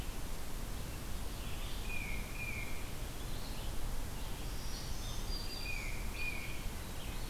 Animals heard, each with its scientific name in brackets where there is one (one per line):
Black-throated Green Warbler (Setophaga virens)
Red-eyed Vireo (Vireo olivaceus)
Tufted Titmouse (Baeolophus bicolor)